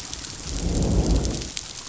{"label": "biophony, growl", "recorder": "SoundTrap 500"}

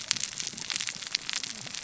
{"label": "biophony, cascading saw", "recorder": "SoundTrap 600 or HydroMoth"}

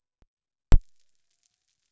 {"label": "biophony", "recorder": "SoundTrap 300"}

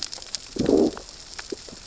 {"label": "biophony, growl", "recorder": "SoundTrap 600 or HydroMoth"}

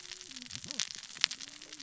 {"label": "biophony, cascading saw", "recorder": "SoundTrap 600 or HydroMoth"}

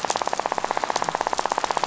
{"label": "biophony, rattle", "recorder": "SoundTrap 500"}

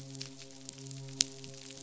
{"label": "biophony, midshipman", "recorder": "SoundTrap 500"}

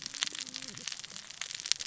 {"label": "biophony, cascading saw", "recorder": "SoundTrap 600 or HydroMoth"}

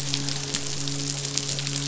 {"label": "biophony, midshipman", "recorder": "SoundTrap 500"}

